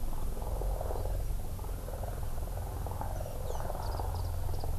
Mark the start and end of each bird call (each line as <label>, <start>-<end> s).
Warbling White-eye (Zosterops japonicus), 3.8-4.6 s